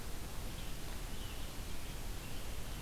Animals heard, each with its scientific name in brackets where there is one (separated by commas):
American Robin (Turdus migratorius), Red-eyed Vireo (Vireo olivaceus)